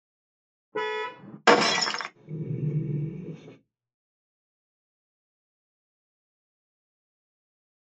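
At 0.72 seconds, the sound of a vehicle horn comes through. Then, at 1.45 seconds, glass shatters. Finally, at 2.14 seconds, there is growling.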